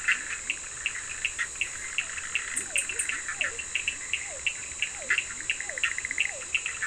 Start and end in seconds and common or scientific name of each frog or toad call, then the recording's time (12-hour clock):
0.0	0.8	Leptodactylus latrans
0.0	6.8	Bischoff's tree frog
0.0	6.8	Cochran's lime tree frog
2.3	3.9	Leptodactylus latrans
2.3	6.8	Physalaemus cuvieri
4.9	6.8	Leptodactylus latrans
11:30pm